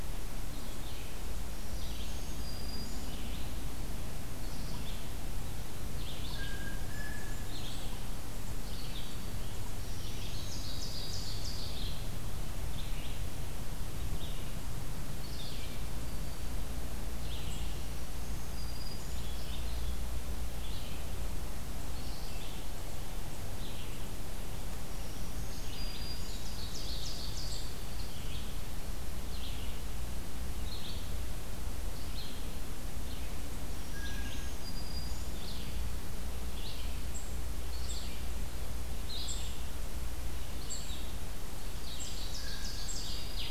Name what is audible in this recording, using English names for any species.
Red-eyed Vireo, Black-throated Green Warbler, Blue Jay, Ovenbird, unknown mammal, Blue-headed Vireo